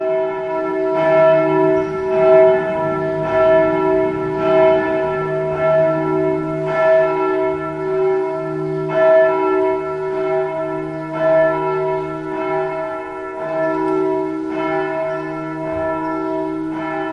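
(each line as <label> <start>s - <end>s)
A church bell rings repeatedly in the distance. 0.0s - 17.1s
A bird chirps in the distance. 1.7s - 2.2s
A bird chirps in the distance. 8.9s - 9.7s
A bird chirps in the distance. 13.6s - 14.1s
Birds chirping in the distance. 15.0s - 17.1s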